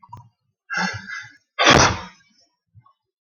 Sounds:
Sneeze